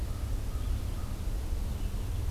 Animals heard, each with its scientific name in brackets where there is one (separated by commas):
American Crow (Corvus brachyrhynchos)